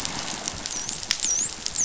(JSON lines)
{"label": "biophony, dolphin", "recorder": "SoundTrap 500"}